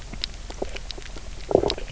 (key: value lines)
label: biophony, knock croak
recorder: SoundTrap 300